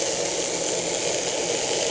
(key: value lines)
label: anthrophony, boat engine
recorder: HydroMoth